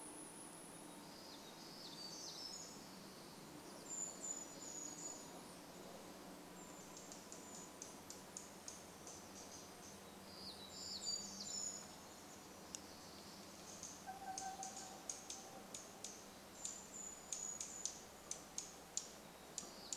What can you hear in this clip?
warbler song, unidentified bird chip note, Brown Creeper call, truck beep